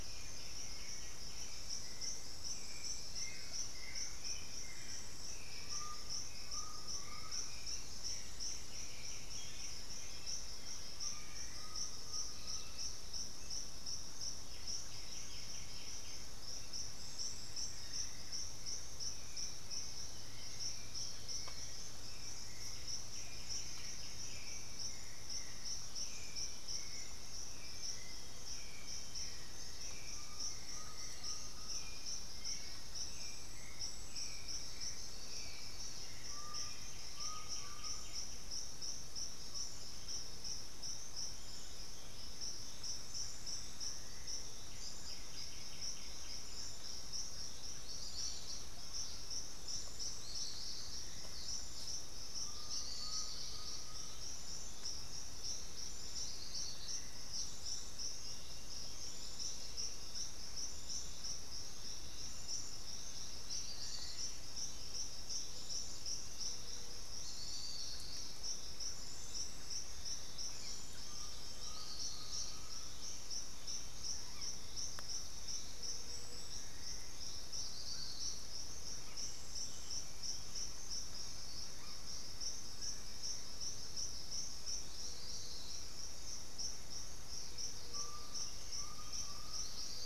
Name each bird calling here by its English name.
White-winged Becard, Russet-backed Oropendola, Hauxwell's Thrush, Undulated Tinamou, White-bellied Tody-Tyrant, Chestnut-winged Foliage-gleaner, Red-bellied Macaw